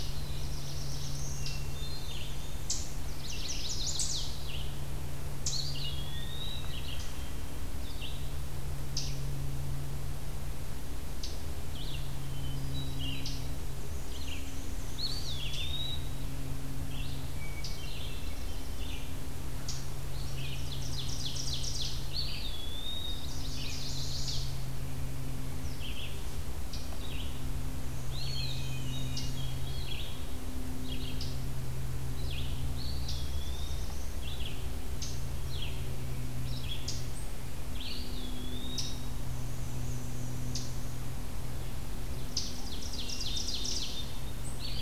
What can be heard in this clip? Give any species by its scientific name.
Setophaga caerulescens, Mniotilta varia, Catharus guttatus, Setophaga pensylvanica, Contopus virens, Vireo olivaceus, Seiurus aurocapilla, Tamias striatus